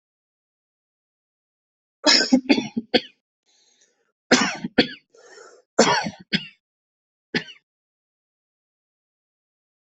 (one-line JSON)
{"expert_labels": [{"quality": "good", "cough_type": "wet", "dyspnea": true, "wheezing": true, "stridor": false, "choking": false, "congestion": false, "nothing": false, "diagnosis": "lower respiratory tract infection", "severity": "severe"}], "age": 25, "gender": "male", "respiratory_condition": true, "fever_muscle_pain": false, "status": "COVID-19"}